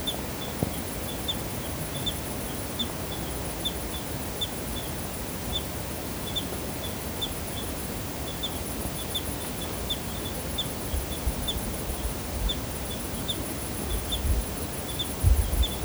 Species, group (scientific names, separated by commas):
Eugryllodes pipiens, Orthoptera